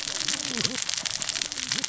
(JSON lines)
{"label": "biophony, cascading saw", "recorder": "SoundTrap 600 or HydroMoth"}